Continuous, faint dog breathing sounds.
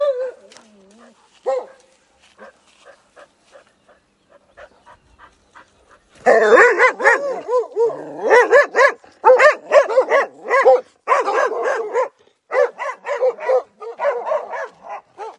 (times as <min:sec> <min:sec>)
0:01.8 0:06.2